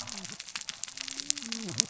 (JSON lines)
{"label": "biophony, cascading saw", "recorder": "SoundTrap 600 or HydroMoth"}